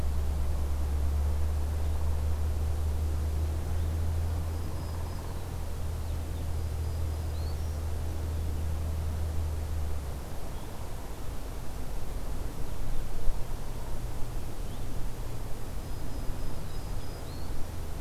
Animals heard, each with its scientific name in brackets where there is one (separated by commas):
Downy Woodpecker (Dryobates pubescens), Black-throated Green Warbler (Setophaga virens)